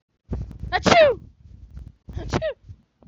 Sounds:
Sneeze